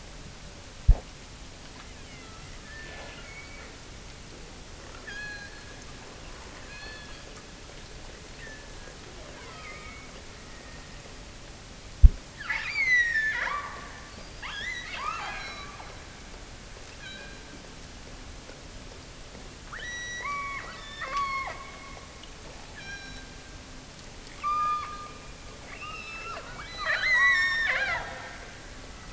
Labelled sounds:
1.7	3.8	killer whale, offshore, 0.82 to 4.7 kHz
5.0	5.9	killer whale, offshore, 1.5 to 7.0 kHz
6.6	7.5	killer whale, offshore, 1.4 to 5.0 kHz
8.3	11.1	killer whale, offshore, 0.45 to 6.3 kHz
12.3	15.8	killer whale, offshore, 0.39 to 8.0 kHz
16.9	17.7	killer whale, offshore, 1.4 to 4.3 kHz
19.7	22.4	killer whale, offshore, 0.61 to 6.0 kHz
22.7	23.5	killer whale, offshore, 1.4 to 6.5 kHz
24.4	28.4	killer whale, offshore, 0.23 to 8.0 kHz

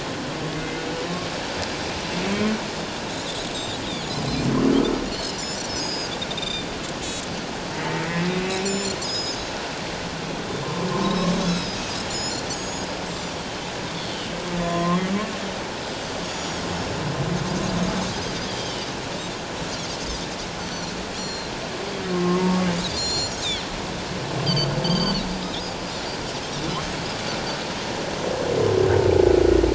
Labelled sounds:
0.5	0.8	humpback whale, 2.0 to 2.1 kHz
3.5	4.5	Pacific white-sided dolphin, 3.4 to 6.8 kHz
5.1	6.1	Pacific white-sided dolphin, 4.2 to 6.8 kHz
6.4	6.7	Pacific white-sided dolphin, 2.3 to 7.3 kHz
8.0	8.3	humpback whale, 1.8 to 2.1 kHz
8.6	9.6	Pacific white-sided dolphin, 4.8 to 8.0 kHz
10.6	10.9	humpback whale, 0.94 to 1.1 kHz
11.0	11.8	Pacific white-sided dolphin, 3.7 to 5.4 kHz
12.1	13.4	Pacific white-sided dolphin, 4.9 to 7.4 kHz
14.6	14.9	humpback whale, 3.2 to 3.6 kHz
14.6	15.0	Pacific white-sided dolphin, 0.97 to 1.2 kHz
16.2	16.6	Pacific white-sided dolphin, 5.5 to 7.0 kHz
18.5	18.9	Pacific white-sided dolphin, 2.8 to 3.4 kHz
20.6	21.5	Pacific white-sided dolphin, 4.0 to 7.3 kHz
22.1	22.4	humpback whale, 1.0 to 1.1 kHz
22.9	23.4	Pacific white-sided dolphin, 4.1 to 7.3 kHz
24.5	25.2	Pacific white-sided dolphin, 2.7 to 6.4 kHz
25.9	26.2	Pacific white-sided dolphin, 4.2 to 4.3 kHz

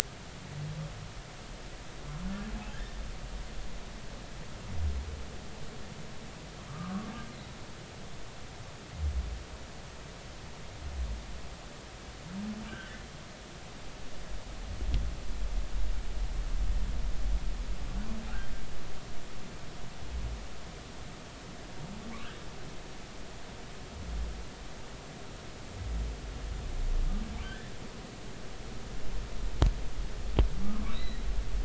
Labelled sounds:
6.7	7.1	humpback whale, 1.0 to 1.3 kHz
22.1	22.4	humpback whale, 2.0 to 3.4 kHz
27.4	27.7	humpback whale, 1.5 to 1.9 kHz
30.9	31.3	humpback whale, 1.9 to 4.1 kHz

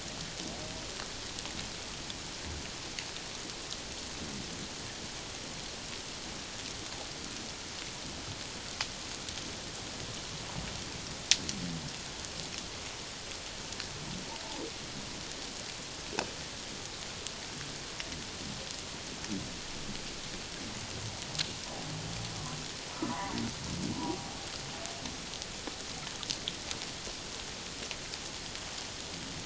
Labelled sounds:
23.1	24.3	humpback whale, 0.78 to 1.2 kHz

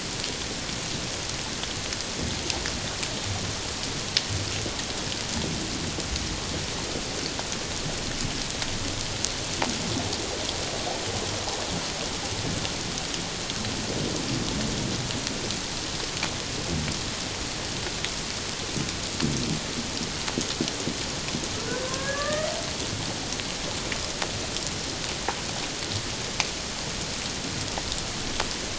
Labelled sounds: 21.6	22.5	humpback whale, 1.1 to 2.0 kHz

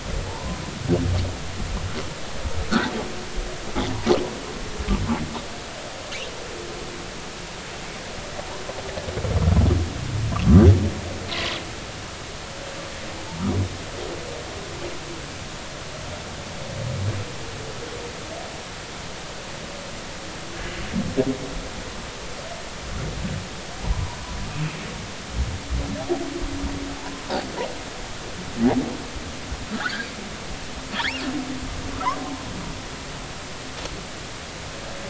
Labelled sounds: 0.3	0.6	humpback whale, 0.80 to 1.1 kHz
11.3	11.5	humpback whale, 0.96 to 2.1 kHz
23.8	24.2	humpback whale, 0.80 to 1.1 kHz
27.0	27.2	humpback whale, 0.83 to 1.1 kHz
29.7	30.1	humpback whale, 1.1 to 1.8 kHz
31.0	31.2	humpback whale, 1.3 to 2.9 kHz

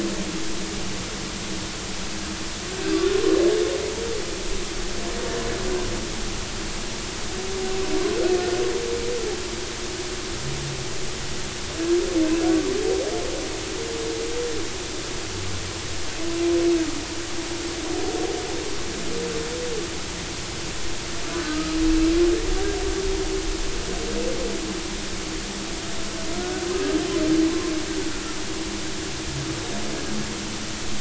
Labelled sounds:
21.3	21.8	humpback whale, 1.2 to 1.3 kHz

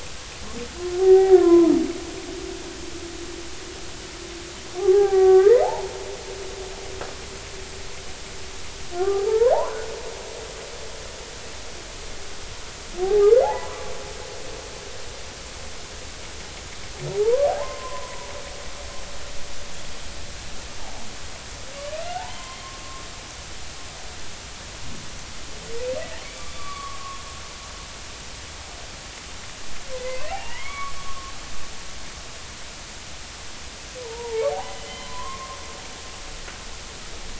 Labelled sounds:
1.0	1.7	humpback whale, 0.80 to 2.0 kHz
4.8	5.9	humpback whale, 0.80 to 2.1 kHz
9.0	9.8	humpback whale, 0.80 to 1.7 kHz
13.0	13.9	humpback whale, 0.80 to 1.7 kHz
17.2	17.5	humpback whale, 0.80 to 1.2 kHz
18.4	19.3	humpback whale, 0.80 to 1.1 kHz
22.0	22.5	humpback whale, 1.3 to 2.1 kHz
26.2	27.0	humpback whale, 1.1 to 2.4 kHz
30.0	31.3	humpback whale, 0.80 to 3.5 kHz
34.0	35.6	humpback whale, 0.80 to 3.2 kHz

